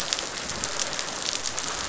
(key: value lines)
label: biophony
recorder: SoundTrap 500